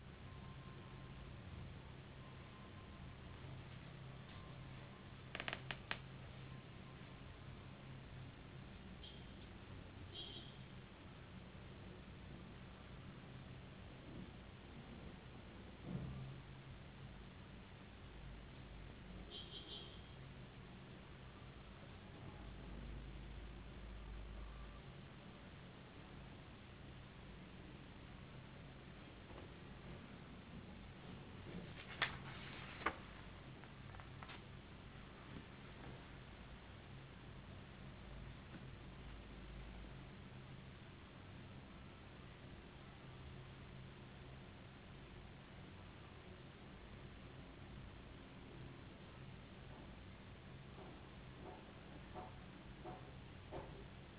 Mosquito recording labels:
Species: no mosquito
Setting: insect culture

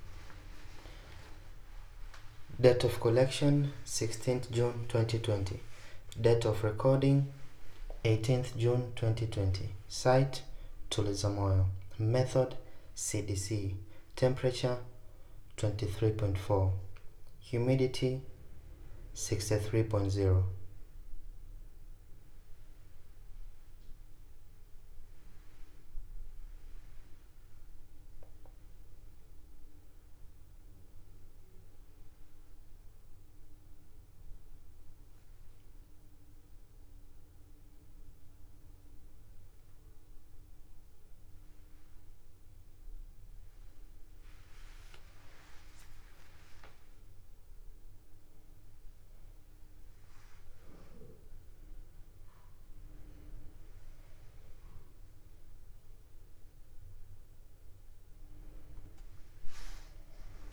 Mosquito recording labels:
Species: no mosquito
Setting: cup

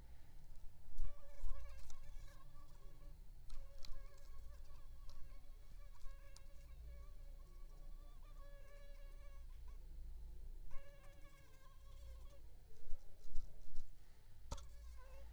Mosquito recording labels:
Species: mosquito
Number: one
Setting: cup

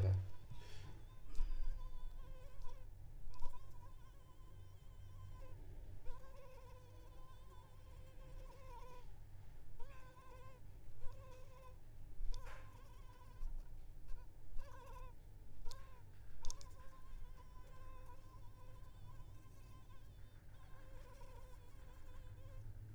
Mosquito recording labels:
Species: Anopheles arabiensis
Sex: female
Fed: unfed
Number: one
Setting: cup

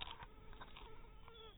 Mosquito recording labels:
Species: mosquito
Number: one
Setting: cup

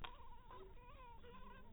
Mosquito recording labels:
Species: mosquito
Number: one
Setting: cup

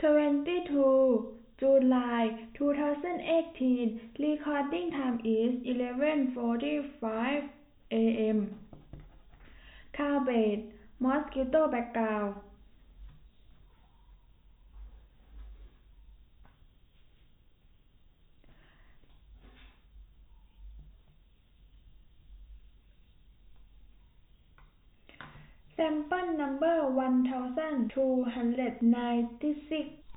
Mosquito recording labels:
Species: no mosquito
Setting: cup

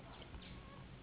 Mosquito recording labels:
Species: Anopheles gambiae s.s.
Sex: female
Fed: unfed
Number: one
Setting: insect culture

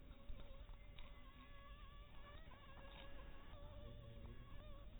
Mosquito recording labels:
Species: Anopheles dirus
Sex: female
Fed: unfed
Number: one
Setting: cup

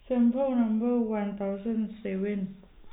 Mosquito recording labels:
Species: no mosquito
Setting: cup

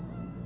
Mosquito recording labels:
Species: Aedes albopictus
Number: one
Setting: insect culture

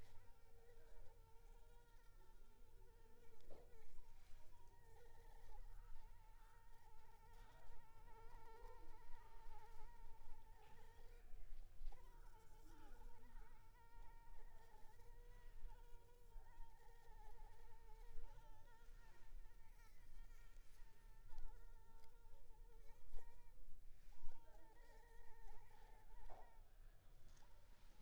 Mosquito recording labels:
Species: Anopheles arabiensis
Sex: female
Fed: unfed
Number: one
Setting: cup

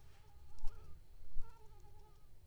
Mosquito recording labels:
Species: Anopheles coustani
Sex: female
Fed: unfed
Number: one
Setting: cup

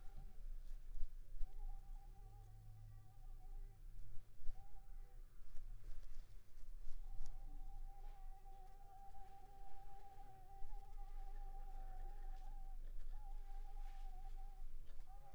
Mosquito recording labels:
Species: Anopheles squamosus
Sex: female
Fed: unfed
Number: one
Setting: cup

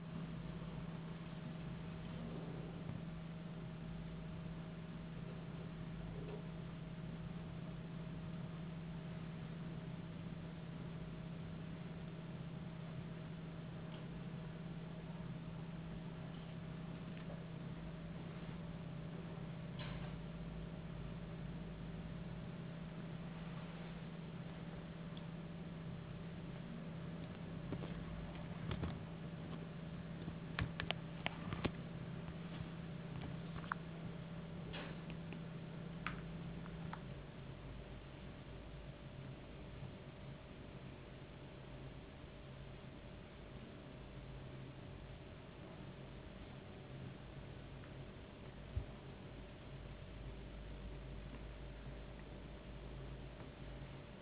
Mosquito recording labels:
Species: no mosquito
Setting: insect culture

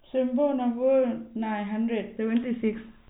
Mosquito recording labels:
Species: no mosquito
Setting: cup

